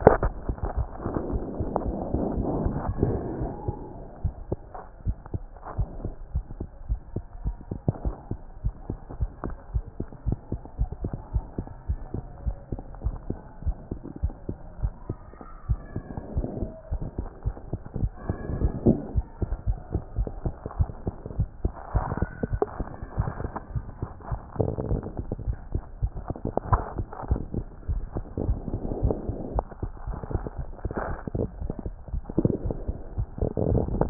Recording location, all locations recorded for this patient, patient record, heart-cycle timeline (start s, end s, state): aortic valve (AV)
aortic valve (AV)+mitral valve (MV)
#Age: Child
#Sex: Male
#Height: 89.0 cm
#Weight: 12.7 kg
#Pregnancy status: False
#Murmur: Absent
#Murmur locations: nan
#Most audible location: nan
#Systolic murmur timing: nan
#Systolic murmur shape: nan
#Systolic murmur grading: nan
#Systolic murmur pitch: nan
#Systolic murmur quality: nan
#Diastolic murmur timing: nan
#Diastolic murmur shape: nan
#Diastolic murmur grading: nan
#Diastolic murmur pitch: nan
#Diastolic murmur quality: nan
#Outcome: Normal
#Campaign: 2014 screening campaign
0.00	0.06	diastole
0.06	0.34	S1
0.34	0.62	systole
0.62	0.88	S2
0.88	1.04	diastole
1.04	1.14	S1
1.14	1.30	systole
1.30	1.44	S2
1.44	1.56	diastole
1.56	1.68	S1
1.68	1.86	systole
1.86	2.02	S2
2.02	2.12	diastole
2.12	2.34	S1
2.34	2.48	systole
2.48	2.82	S2
2.82	2.88	diastole
2.88	3.22	S1
3.22	3.38	systole
3.38	3.54	S2
3.54	3.76	diastole
3.76	3.78	S1
3.78	3.96	systole
3.96	4.00	S2
4.00	4.24	diastole
4.24	4.34	S1
4.34	4.62	systole
4.62	4.70	S2
4.70	5.06	diastole
5.06	5.16	S1
5.16	5.34	systole
5.34	5.44	S2
5.44	5.76	diastole
5.76	5.88	S1
5.88	6.02	systole
6.02	6.12	S2
6.12	6.34	diastole
6.34	6.44	S1
6.44	6.62	systole
6.62	6.68	S2
6.68	6.90	diastole
6.90	7.00	S1
7.00	7.16	systole
7.16	7.24	S2
7.24	7.44	diastole
7.44	7.56	S1
7.56	7.72	systole
7.72	7.80	S2
7.80	8.04	diastole
8.04	8.14	S1
8.14	8.32	systole
8.32	8.38	S2
8.38	8.66	diastole
8.66	8.74	S1
8.74	8.90	systole
8.90	8.98	S2
8.98	9.20	diastole
9.20	9.30	S1
9.30	9.44	systole
9.44	9.56	S2
9.56	9.74	diastole
9.74	9.84	S1
9.84	10.00	systole
10.00	10.06	S2
10.06	10.26	diastole
10.26	10.38	S1
10.38	10.52	systole
10.52	10.60	S2
10.60	10.80	diastole
10.80	10.90	S1
10.90	11.02	systole
11.02	11.12	S2
11.12	11.34	diastole
11.34	11.44	S1
11.44	11.58	systole
11.58	11.66	S2
11.66	11.90	diastole
11.90	12.00	S1
12.00	12.14	systole
12.14	12.22	S2
12.22	12.46	diastole
12.46	12.56	S1
12.56	12.72	systole
12.72	12.80	S2
12.80	13.04	diastole
13.04	13.16	S1
13.16	13.28	systole
13.28	13.38	S2
13.38	13.64	diastole
13.64	13.76	S1
13.76	13.96	systole
13.96	14.00	S2
14.00	14.24	diastole
14.24	14.32	S1
14.32	14.50	systole
14.50	14.56	S2
14.56	14.82	diastole
14.82	14.92	S1
14.92	15.16	systole
15.16	15.28	S2
15.28	15.68	diastole
15.68	15.78	S1
15.78	15.96	systole
15.96	16.04	S2
16.04	16.34	diastole
16.34	16.48	S1
16.48	16.62	systole
16.62	16.70	S2
16.70	16.92	diastole
16.92	17.06	S1
17.06	17.20	systole
17.20	17.28	S2
17.28	17.46	diastole
17.46	17.54	S1
17.54	17.74	systole
17.74	17.80	S2
17.80	18.00	diastole
18.00	18.12	S1
18.12	18.28	systole
18.28	18.36	S2
18.36	18.50	diastole
18.50	18.72	S1
18.72	18.84	systole
18.84	19.04	S2
19.04	19.16	diastole
19.16	19.26	S1
19.26	19.42	systole
19.42	19.50	S2
19.50	19.68	diastole
19.68	19.78	S1
19.78	19.94	systole
19.94	20.02	S2
20.02	20.16	diastole
20.16	20.28	S1
20.28	20.44	systole
20.44	20.54	S2
20.54	20.78	diastole
20.78	20.88	S1
20.88	21.08	systole
21.08	21.12	S2
21.12	21.38	diastole
21.38	21.48	S1
21.48	21.64	systole
21.64	21.72	S2
21.72	21.94	diastole
21.94	22.04	S1
22.04	22.16	systole
22.16	22.30	S2
22.30	22.52	diastole
22.52	22.60	S1
22.60	22.78	systole
22.78	22.88	S2
22.88	23.18	diastole
23.18	23.32	S1
23.32	23.46	systole
23.46	23.52	S2
23.52	23.74	diastole
23.74	23.84	S1
23.84	24.02	systole
24.02	24.08	S2
24.08	24.30	diastole
24.30	24.40	S1
24.40	24.58	systole
24.58	24.74	S2
24.74	24.86	diastole
24.86	25.02	S1
25.02	25.18	systole
25.18	25.26	S2
25.26	25.46	diastole
25.46	25.56	S1
25.56	25.74	systole
25.74	25.82	S2
25.82	26.02	diastole
26.02	26.10	S1
26.10	26.28	systole
26.28	26.38	S2
26.38	26.68	diastole
26.68	26.82	S1
26.82	26.98	systole
26.98	27.06	S2
27.06	27.28	diastole
27.28	27.42	S1
27.42	27.56	systole
27.56	27.66	S2
27.66	27.90	diastole
27.90	28.04	S1
28.04	28.16	systole
28.16	28.24	S2
28.24	28.44	diastole
28.44	28.60	S1
28.60	28.72	systole
28.72	28.82	S2
28.82	29.00	diastole
29.00	29.18	S1
29.18	29.30	systole
29.30	29.40	S2
29.40	29.54	diastole
29.54	29.64	S1
29.64	29.84	systole
29.84	29.90	S2
29.90	30.08	diastole
30.08	30.16	S1
30.16	30.34	systole
30.34	30.50	S2
30.50	30.86	diastole
30.86	30.92	S1
30.92	31.10	systole
31.10	31.18	S2
31.18	31.36	diastole
31.36	31.48	S1
31.48	31.62	systole
31.62	31.74	S2
31.74	31.90	diastole
31.90	31.94	S1
31.94	32.12	systole
32.12	32.24	S2
32.24	32.38	diastole
32.38	32.54	S1
32.54	32.66	systole
32.66	32.84	S2
32.84	33.16	diastole
33.16	33.28	S1
33.28	33.40	systole
33.40	33.50	S2
33.50	33.58	diastole
33.58	33.86	S1
33.86	33.90	systole
33.90	34.10	S2